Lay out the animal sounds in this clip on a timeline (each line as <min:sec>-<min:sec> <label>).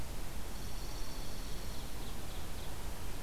0:00.5-0:01.9 Dark-eyed Junco (Junco hyemalis)
0:01.1-0:02.8 Ovenbird (Seiurus aurocapilla)